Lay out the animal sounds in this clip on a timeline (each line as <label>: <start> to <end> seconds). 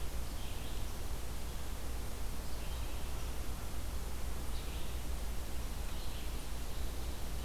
Red-eyed Vireo (Vireo olivaceus): 0.2 to 7.4 seconds